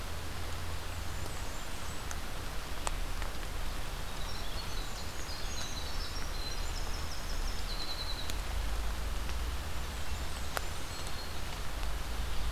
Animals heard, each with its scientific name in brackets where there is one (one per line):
Brown Creeper (Certhia americana)
Black-throated Green Warbler (Setophaga virens)
Winter Wren (Troglodytes hiemalis)
Blackburnian Warbler (Setophaga fusca)